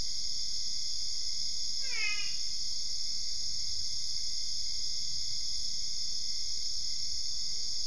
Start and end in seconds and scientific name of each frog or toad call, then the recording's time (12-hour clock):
1.7	2.7	Physalaemus marmoratus
2:30am